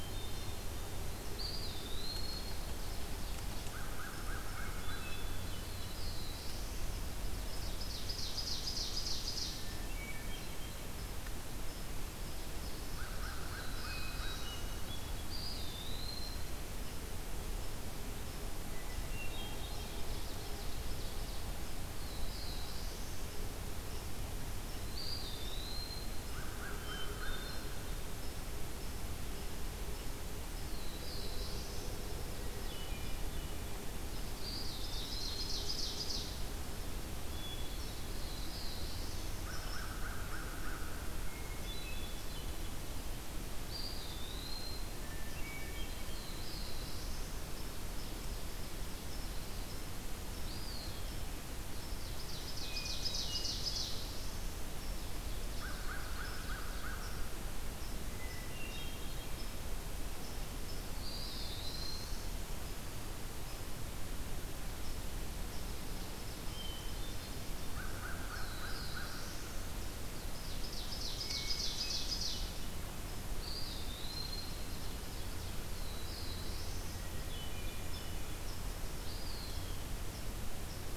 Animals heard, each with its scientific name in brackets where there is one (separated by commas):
Black-throated Blue Warbler (Setophaga caerulescens), Ovenbird (Seiurus aurocapilla), Eastern Wood-Pewee (Contopus virens), American Crow (Corvus brachyrhynchos), Hermit Thrush (Catharus guttatus)